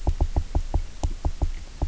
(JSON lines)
{"label": "biophony, knock croak", "recorder": "SoundTrap 300"}